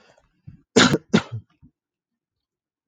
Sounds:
Throat clearing